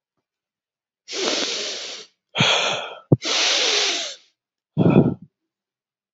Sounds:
Sniff